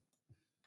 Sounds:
Sniff